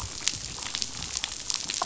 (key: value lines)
label: biophony, damselfish
recorder: SoundTrap 500